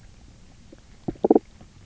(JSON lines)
{"label": "biophony, knock croak", "recorder": "SoundTrap 300"}